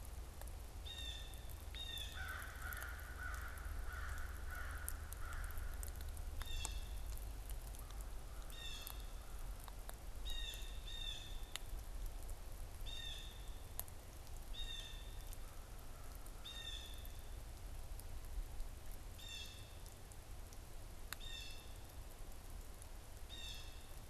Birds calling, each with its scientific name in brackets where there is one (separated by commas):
Blue Jay (Cyanocitta cristata), American Crow (Corvus brachyrhynchos)